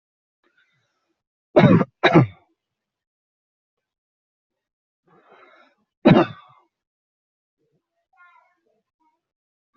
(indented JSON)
{
  "expert_labels": [
    {
      "quality": "ok",
      "cough_type": "unknown",
      "dyspnea": false,
      "wheezing": false,
      "stridor": false,
      "choking": false,
      "congestion": false,
      "nothing": true,
      "diagnosis": "upper respiratory tract infection",
      "severity": "unknown"
    }
  ],
  "age": 23,
  "gender": "male",
  "respiratory_condition": false,
  "fever_muscle_pain": false,
  "status": "healthy"
}